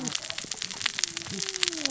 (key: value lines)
label: biophony, cascading saw
recorder: SoundTrap 600 or HydroMoth